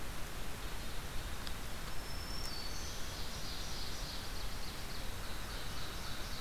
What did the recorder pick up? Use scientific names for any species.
Vireo olivaceus, Seiurus aurocapilla, Setophaga virens, Corvus brachyrhynchos